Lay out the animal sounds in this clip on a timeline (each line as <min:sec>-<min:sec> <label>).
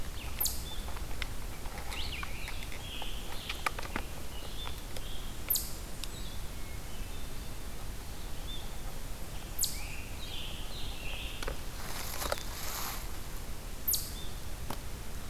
0:00.0-0:15.3 Eastern Chipmunk (Tamias striatus)
0:00.0-0:15.3 Red-eyed Vireo (Vireo olivaceus)
0:01.9-0:03.9 Scarlet Tanager (Piranga olivacea)
0:06.5-0:07.6 Hermit Thrush (Catharus guttatus)
0:09.5-0:11.4 Scarlet Tanager (Piranga olivacea)